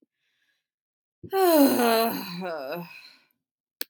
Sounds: Sigh